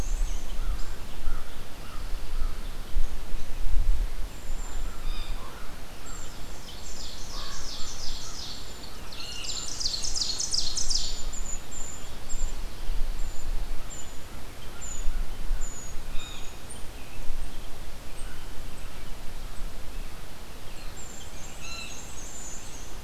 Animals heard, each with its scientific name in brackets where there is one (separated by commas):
Blue Jay (Cyanocitta cristata), Common Raven (Corvus corax), Pine Warbler (Setophaga pinus), American Crow (Corvus brachyrhynchos), American Robin (Turdus migratorius), Brown Creeper (Certhia americana), Ovenbird (Seiurus aurocapilla), Black-and-white Warbler (Mniotilta varia)